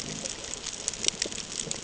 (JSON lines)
{"label": "ambient", "recorder": "HydroMoth"}